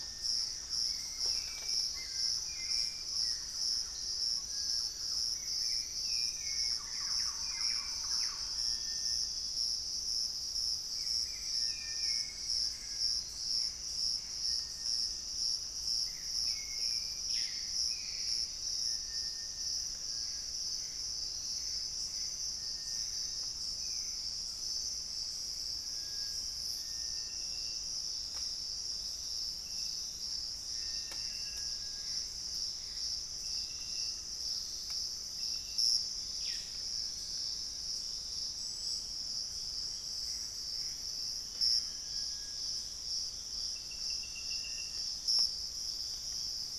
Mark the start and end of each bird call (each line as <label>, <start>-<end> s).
Thrush-like Wren (Campylorhynchus turdinus), 0.0-9.0 s
Hauxwell's Thrush (Turdus hauxwelli), 0.0-17.5 s
unidentified bird, 6.0-7.6 s
Gray Antbird (Cercomacra cinerascens), 12.7-14.5 s
unidentified bird, 17.2-18.6 s
Piratic Flycatcher (Legatus leucophaius), 18.4-24.3 s
unidentified bird, 19.7-20.2 s
Gray Antbird (Cercomacra cinerascens), 20.2-23.6 s
Collared Trogon (Trogon collaris), 23.1-25.0 s
Gray Antbird (Cercomacra cinerascens), 30.7-33.5 s
Gray Antbird (Cercomacra cinerascens), 39.6-42.6 s
Dusky-throated Antshrike (Thamnomanes ardesiacus), 40.9-43.2 s